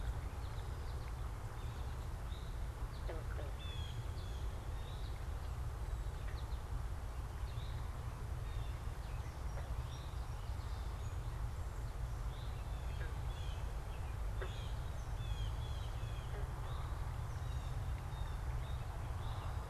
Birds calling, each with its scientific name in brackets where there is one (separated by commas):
Blue Jay (Cyanocitta cristata), American Goldfinch (Spinus tristis), Eastern Towhee (Pipilo erythrophthalmus)